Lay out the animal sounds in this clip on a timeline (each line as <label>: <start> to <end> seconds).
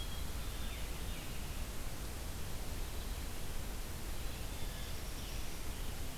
White-throated Sparrow (Zonotrichia albicollis): 0.0 to 0.9 seconds
Veery (Catharus fuscescens): 0.4 to 1.5 seconds
Black-throated Blue Warbler (Setophaga caerulescens): 4.5 to 5.7 seconds